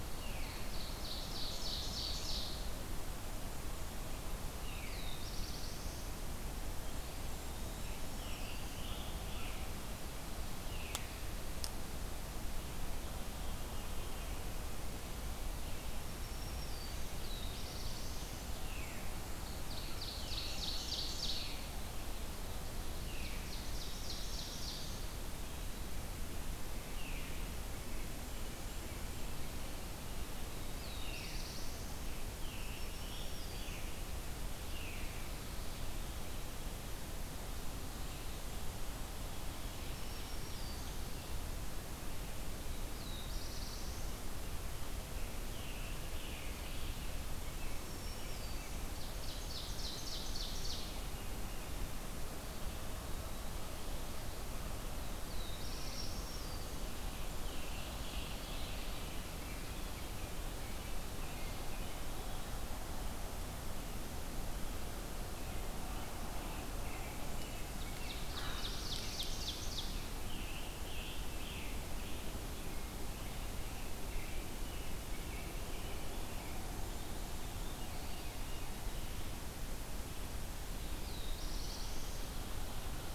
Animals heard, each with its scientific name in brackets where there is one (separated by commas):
American Crow (Corvus brachyrhynchos), Black-throated Blue Warbler (Setophaga caerulescens), Scarlet Tanager (Piranga olivacea), Veery (Catharus fuscescens), Eastern Wood-Pewee (Contopus virens), Blackburnian Warbler (Setophaga fusca), Black-throated Green Warbler (Setophaga virens), Ovenbird (Seiurus aurocapilla), American Robin (Turdus migratorius)